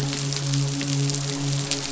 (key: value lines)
label: biophony, midshipman
recorder: SoundTrap 500